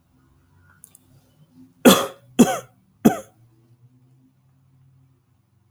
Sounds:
Cough